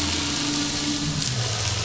{"label": "anthrophony, boat engine", "recorder": "SoundTrap 500"}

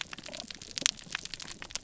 {"label": "biophony, damselfish", "recorder": "SoundTrap 300"}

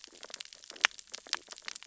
{"label": "biophony, stridulation", "recorder": "SoundTrap 600 or HydroMoth"}
{"label": "biophony, sea urchins (Echinidae)", "recorder": "SoundTrap 600 or HydroMoth"}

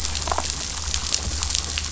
{"label": "biophony, damselfish", "recorder": "SoundTrap 500"}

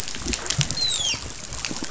{"label": "biophony, dolphin", "recorder": "SoundTrap 500"}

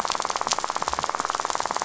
{"label": "biophony, rattle", "recorder": "SoundTrap 500"}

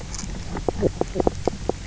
{"label": "biophony, knock croak", "recorder": "SoundTrap 300"}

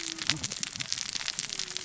{"label": "biophony, cascading saw", "recorder": "SoundTrap 600 or HydroMoth"}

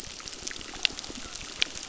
{"label": "biophony, crackle", "recorder": "SoundTrap 600"}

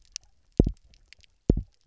{"label": "biophony, double pulse", "recorder": "SoundTrap 300"}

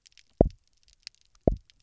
{"label": "biophony, double pulse", "recorder": "SoundTrap 300"}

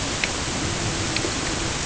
{"label": "ambient", "recorder": "HydroMoth"}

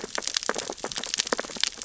{"label": "biophony, sea urchins (Echinidae)", "recorder": "SoundTrap 600 or HydroMoth"}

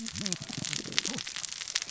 {"label": "biophony, cascading saw", "recorder": "SoundTrap 600 or HydroMoth"}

